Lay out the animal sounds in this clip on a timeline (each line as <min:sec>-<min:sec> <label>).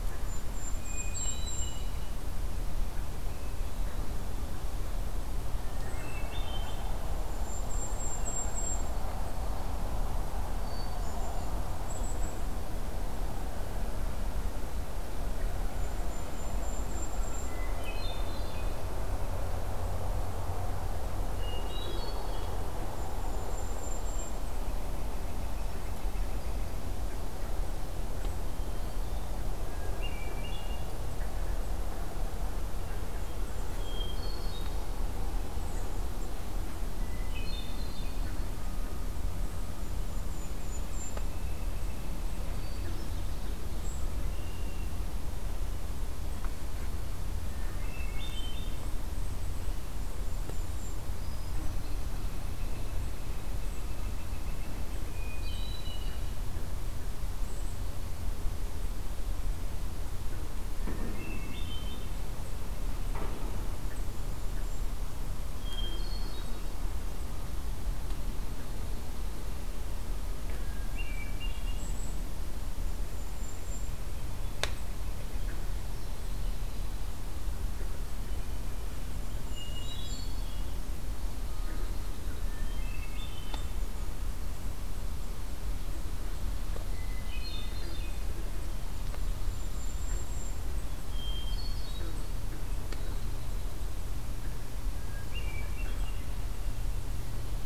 0:00.0-0:02.0 Golden-crowned Kinglet (Regulus satrapa)
0:00.6-0:02.3 Hermit Thrush (Catharus guttatus)
0:03.1-0:04.7 Hermit Thrush (Catharus guttatus)
0:05.7-0:07.1 Hermit Thrush (Catharus guttatus)
0:07.1-0:09.1 Golden-crowned Kinglet (Regulus satrapa)
0:08.1-0:09.1 Hermit Thrush (Catharus guttatus)
0:10.4-0:11.5 Hermit Thrush (Catharus guttatus)
0:10.8-0:12.4 Golden-crowned Kinglet (Regulus satrapa)
0:15.6-0:17.7 Golden-crowned Kinglet (Regulus satrapa)
0:17.5-0:18.9 Hermit Thrush (Catharus guttatus)
0:21.1-0:22.7 Hermit Thrush (Catharus guttatus)
0:22.9-0:24.7 Golden-crowned Kinglet (Regulus satrapa)
0:28.4-0:29.5 Hermit Thrush (Catharus guttatus)
0:29.8-0:30.9 Hermit Thrush (Catharus guttatus)
0:33.5-0:35.0 Hermit Thrush (Catharus guttatus)
0:36.9-0:38.5 Hermit Thrush (Catharus guttatus)
0:39.5-0:41.4 Golden-crowned Kinglet (Regulus satrapa)
0:40.7-0:42.3 Northern Flicker (Colaptes auratus)
0:42.6-0:43.6 Hermit Thrush (Catharus guttatus)
0:44.2-0:45.1 Hermit Thrush (Catharus guttatus)
0:47.4-0:48.9 Hermit Thrush (Catharus guttatus)
0:50.2-0:51.1 Golden-crowned Kinglet (Regulus satrapa)
0:51.1-0:52.2 Hermit Thrush (Catharus guttatus)
0:51.6-0:55.0 Northern Flicker (Colaptes auratus)
0:54.8-0:56.6 Hermit Thrush (Catharus guttatus)
1:00.6-1:02.2 Hermit Thrush (Catharus guttatus)
1:03.8-1:05.0 Golden-crowned Kinglet (Regulus satrapa)
1:05.4-1:06.9 Hermit Thrush (Catharus guttatus)
1:10.9-1:12.0 Hermit Thrush (Catharus guttatus)
1:11.6-1:14.1 Golden-crowned Kinglet (Regulus satrapa)
1:18.7-1:20.5 Golden-crowned Kinglet (Regulus satrapa)
1:19.5-1:20.8 Hermit Thrush (Catharus guttatus)
1:22.4-1:23.9 Hermit Thrush (Catharus guttatus)
1:27.0-1:28.5 Hermit Thrush (Catharus guttatus)
1:28.8-1:30.7 Golden-crowned Kinglet (Regulus satrapa)
1:31.0-1:33.8 Hermit Thrush (Catharus guttatus)
1:34.9-1:36.4 Hermit Thrush (Catharus guttatus)